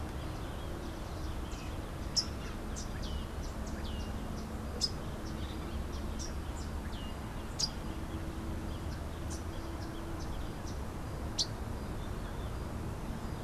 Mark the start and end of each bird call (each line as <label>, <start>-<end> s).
Rufous-capped Warbler (Basileuterus rufifrons), 0.0-3.9 s
Melodious Blackbird (Dives dives), 6.7-7.3 s
Rufous-capped Warbler (Basileuterus rufifrons), 7.4-13.4 s